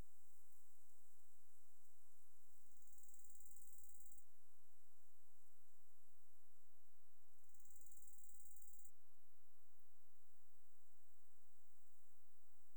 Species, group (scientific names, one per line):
Chorthippus brunneus
Orthoptera